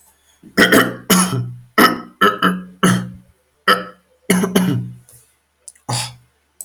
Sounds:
Throat clearing